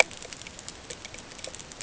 {"label": "ambient", "recorder": "HydroMoth"}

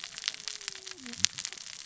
{"label": "biophony, cascading saw", "recorder": "SoundTrap 600 or HydroMoth"}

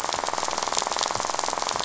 {"label": "biophony, rattle", "recorder": "SoundTrap 500"}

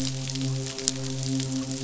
{"label": "biophony, midshipman", "recorder": "SoundTrap 500"}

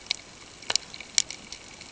{"label": "ambient", "recorder": "HydroMoth"}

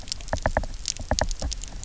{"label": "biophony, knock", "recorder": "SoundTrap 300"}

